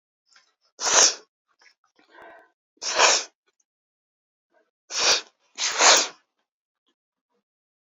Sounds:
Sniff